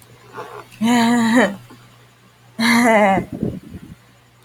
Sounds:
Laughter